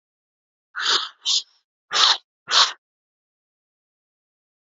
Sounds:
Sniff